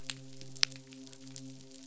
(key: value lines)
label: biophony, midshipman
recorder: SoundTrap 500